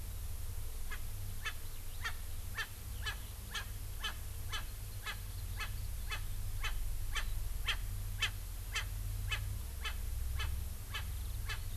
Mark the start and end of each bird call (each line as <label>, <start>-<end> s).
Erckel's Francolin (Pternistis erckelii), 0.9-1.0 s
Erckel's Francolin (Pternistis erckelii), 1.4-1.6 s
Erckel's Francolin (Pternistis erckelii), 2.0-2.2 s
Erckel's Francolin (Pternistis erckelii), 2.6-2.7 s
Erckel's Francolin (Pternistis erckelii), 3.0-3.2 s
Erckel's Francolin (Pternistis erckelii), 3.5-3.7 s
Erckel's Francolin (Pternistis erckelii), 4.0-4.1 s
Erckel's Francolin (Pternistis erckelii), 4.5-4.6 s
Erckel's Francolin (Pternistis erckelii), 5.0-5.2 s
Erckel's Francolin (Pternistis erckelii), 5.6-5.7 s
Erckel's Francolin (Pternistis erckelii), 6.1-6.2 s
Erckel's Francolin (Pternistis erckelii), 6.6-6.7 s
Erckel's Francolin (Pternistis erckelii), 7.1-7.3 s
Erckel's Francolin (Pternistis erckelii), 7.6-7.8 s
Erckel's Francolin (Pternistis erckelii), 8.2-8.3 s
Erckel's Francolin (Pternistis erckelii), 8.7-8.9 s
Erckel's Francolin (Pternistis erckelii), 9.3-9.4 s
Erckel's Francolin (Pternistis erckelii), 9.8-9.9 s
Erckel's Francolin (Pternistis erckelii), 10.4-10.5 s
Erckel's Francolin (Pternistis erckelii), 10.9-11.0 s
Erckel's Francolin (Pternistis erckelii), 11.4-11.6 s